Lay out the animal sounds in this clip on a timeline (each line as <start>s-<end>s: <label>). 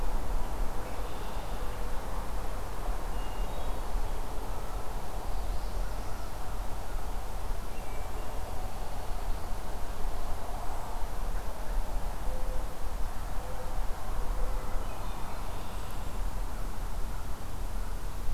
0.8s-1.8s: Red-winged Blackbird (Agelaius phoeniceus)
3.1s-4.0s: Hermit Thrush (Catharus guttatus)
5.1s-6.3s: Northern Parula (Setophaga americana)
7.6s-8.6s: Hermit Thrush (Catharus guttatus)
14.7s-15.5s: Hermit Thrush (Catharus guttatus)
15.3s-16.3s: Red-winged Blackbird (Agelaius phoeniceus)